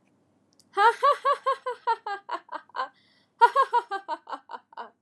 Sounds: Laughter